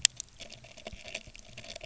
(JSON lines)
{"label": "biophony", "recorder": "SoundTrap 300"}